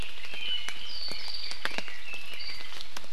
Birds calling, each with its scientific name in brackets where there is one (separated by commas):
Apapane (Himatione sanguinea)